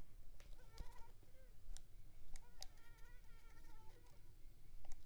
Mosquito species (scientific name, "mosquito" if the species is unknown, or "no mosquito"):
Culex pipiens complex